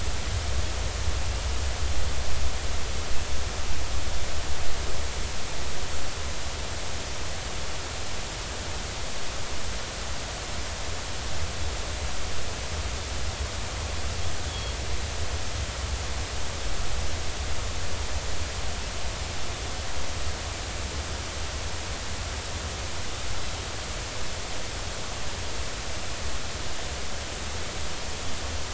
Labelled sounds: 14.5	14.8	Pacific white-sided dolphin, 3.2 to 3.5 kHz

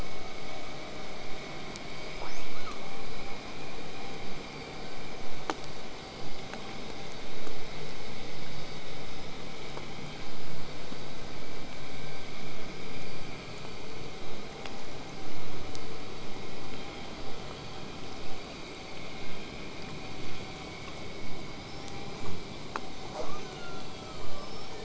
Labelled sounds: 1.9	2.8	killer whale, southern resident, 0.58 to 8.0 kHz
21.3	21.9	killer whale, southern resident, whistle, 4.5 to 6.0 kHz
23.1	24.8	killer whale, southern resident, 0.31 to 8.0 kHz

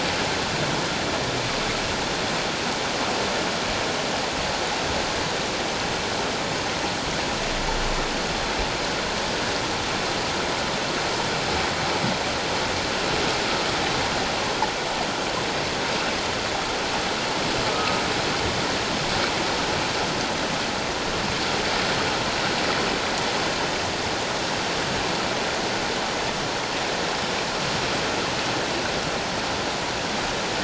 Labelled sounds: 17.7	18.0	humpback whale, 1.2 to 1.4 kHz

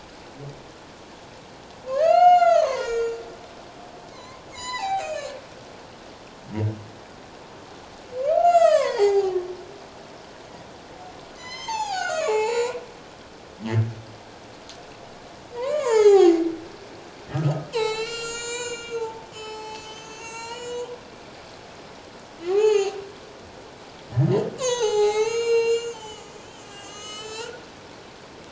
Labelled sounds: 1.9	3.2	humpback whale, 0.91 to 7.9 kHz
4.1	5.4	humpback whale, 0.78 to 7.2 kHz
8.2	9.3	humpback whale, 0.78 to 8.0 kHz
11.4	12.8	humpback whale, 0.78 to 8.0 kHz
15.5	16.4	humpback whale, 0.78 to 7.6 kHz
17.3	20.9	humpback whale, 0.81 to 8.0 kHz
22.5	23.0	humpback whale, 0.78 to 7.5 kHz
24.6	27.7	humpback whale, 0.78 to 8.0 kHz

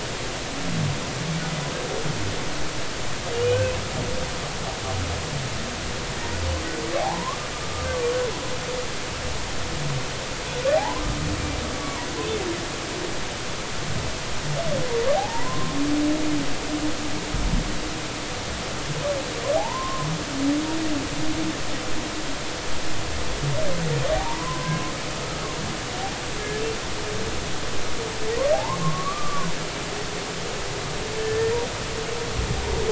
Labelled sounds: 3.4	3.8	humpback whale, 2.4 to 2.7 kHz
4.3	4.6	humpback whale, 2.8 to 3.0 kHz
7.0	8.2	humpback whale, 0.80 to 1.2 kHz
10.7	11.0	humpback whale, 0.80 to 1.1 kHz
11.8	12.1	humpback whale, 0.90 to 1.2 kHz
15.1	15.7	humpback whale, 0.80 to 1.1 kHz
19.5	20.1	humpback whale, 0.80 to 1.1 kHz
24.1	24.9	humpback whale, 0.80 to 1.7 kHz
28.5	29.5	humpback whale, 0.80 to 1.2 kHz
31.2	31.6	humpback whale, 1.7 to 2.0 kHz

